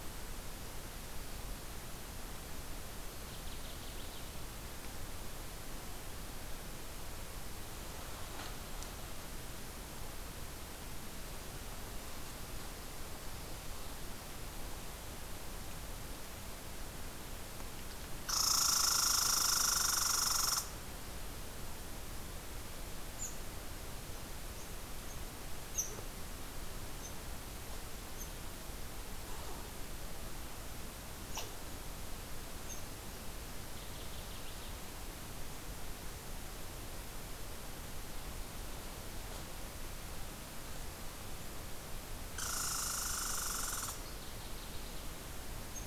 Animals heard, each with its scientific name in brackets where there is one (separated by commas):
Northern Waterthrush (Parkesia noveboracensis), Red Squirrel (Tamiasciurus hudsonicus)